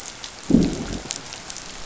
{"label": "biophony, growl", "recorder": "SoundTrap 500"}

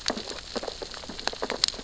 {"label": "biophony, sea urchins (Echinidae)", "recorder": "SoundTrap 600 or HydroMoth"}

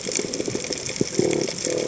{"label": "biophony", "recorder": "HydroMoth"}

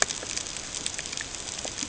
{"label": "ambient", "recorder": "HydroMoth"}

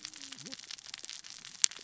{"label": "biophony, cascading saw", "recorder": "SoundTrap 600 or HydroMoth"}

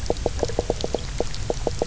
{"label": "biophony, knock croak", "recorder": "SoundTrap 300"}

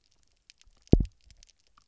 {"label": "biophony, double pulse", "recorder": "SoundTrap 300"}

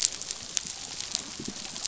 {"label": "biophony", "recorder": "SoundTrap 500"}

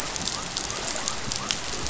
{"label": "biophony", "recorder": "SoundTrap 500"}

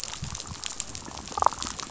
{"label": "biophony, damselfish", "recorder": "SoundTrap 500"}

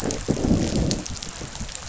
{"label": "biophony, growl", "recorder": "SoundTrap 500"}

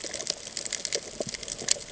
{"label": "ambient", "recorder": "HydroMoth"}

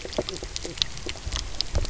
{"label": "biophony, knock croak", "recorder": "SoundTrap 300"}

